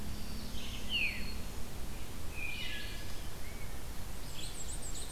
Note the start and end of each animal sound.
0.0s-2.0s: Black-throated Green Warbler (Setophaga virens)
0.0s-5.1s: Red-eyed Vireo (Vireo olivaceus)
0.8s-1.3s: Veery (Catharus fuscescens)
1.9s-3.7s: Wood Thrush (Hylocichla mustelina)
3.8s-5.1s: Black-and-white Warbler (Mniotilta varia)
4.5s-5.1s: Ovenbird (Seiurus aurocapilla)

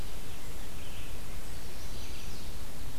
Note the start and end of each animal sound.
0.0s-3.0s: Red-eyed Vireo (Vireo olivaceus)
1.3s-2.6s: Chestnut-sided Warbler (Setophaga pensylvanica)

